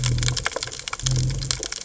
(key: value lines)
label: biophony
recorder: HydroMoth